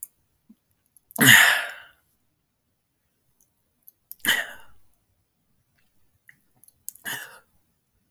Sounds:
Throat clearing